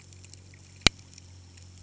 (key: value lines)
label: anthrophony, boat engine
recorder: HydroMoth